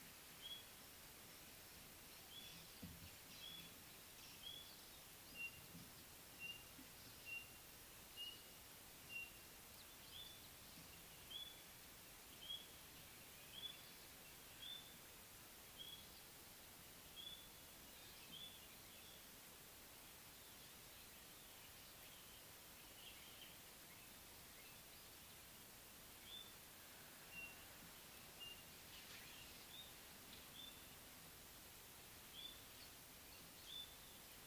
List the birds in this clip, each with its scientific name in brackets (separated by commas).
White-browed Robin-Chat (Cossypha heuglini)